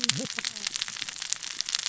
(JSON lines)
{"label": "biophony, cascading saw", "recorder": "SoundTrap 600 or HydroMoth"}